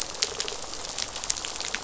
{"label": "biophony", "recorder": "SoundTrap 500"}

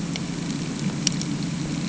{"label": "anthrophony, boat engine", "recorder": "HydroMoth"}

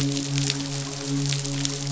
{"label": "biophony, midshipman", "recorder": "SoundTrap 500"}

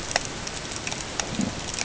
{"label": "ambient", "recorder": "HydroMoth"}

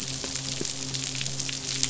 {"label": "biophony, midshipman", "recorder": "SoundTrap 500"}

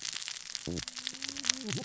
{"label": "biophony, cascading saw", "recorder": "SoundTrap 600 or HydroMoth"}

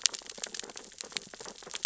{"label": "biophony, sea urchins (Echinidae)", "recorder": "SoundTrap 600 or HydroMoth"}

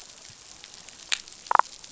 {"label": "biophony, damselfish", "recorder": "SoundTrap 500"}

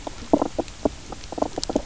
{"label": "biophony, knock croak", "recorder": "SoundTrap 300"}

